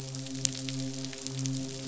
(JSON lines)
{"label": "biophony, midshipman", "recorder": "SoundTrap 500"}